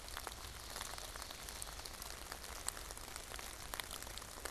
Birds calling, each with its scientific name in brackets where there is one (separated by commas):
Ovenbird (Seiurus aurocapilla)